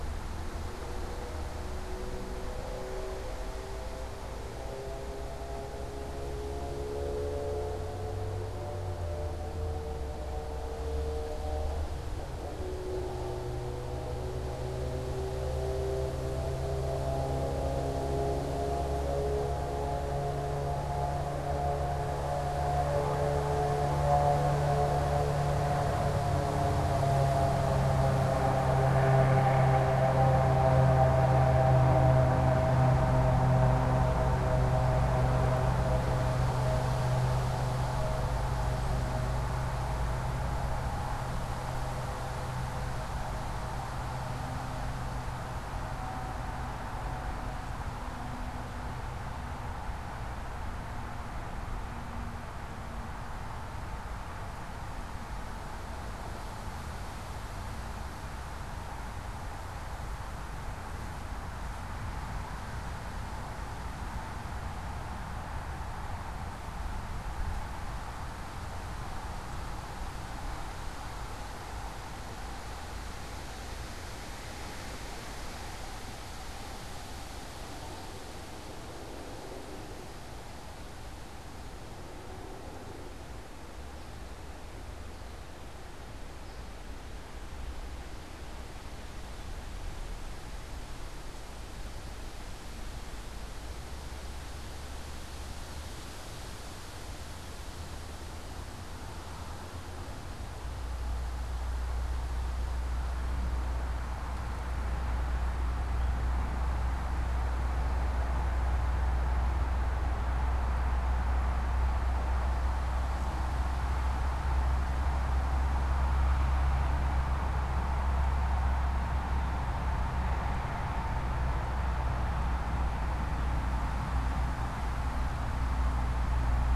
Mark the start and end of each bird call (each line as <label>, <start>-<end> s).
unidentified bird, 83.2-86.9 s